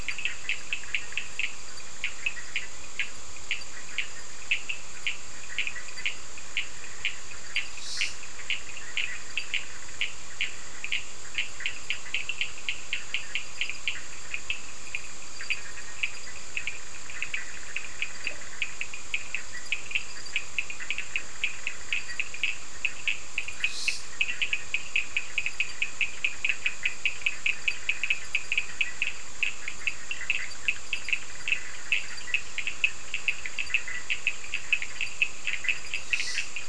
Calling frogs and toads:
Boana bischoffi, Sphaenorhynchus surdus
Atlantic Forest, Brazil, 10:15pm

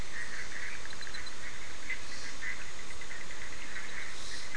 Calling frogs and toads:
Boana bischoffi
Atlantic Forest, Brazil, 8:30pm

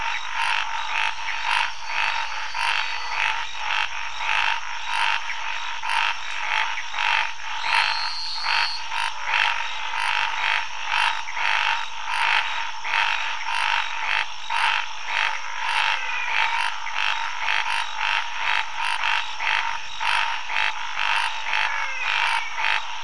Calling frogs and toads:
Scinax fuscovarius, Pithecopus azureus, Elachistocleis matogrosso, Physalaemus albonotatus
Cerrado, Brazil, 4:00am

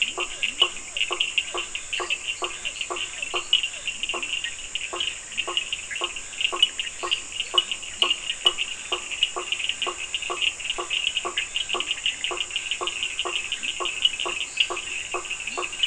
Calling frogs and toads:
Leptodactylus latrans, Physalaemus cuvieri, Boana faber, Sphaenorhynchus surdus, Dendropsophus minutus, Boana bischoffi
Atlantic Forest, Brazil, 9:00pm

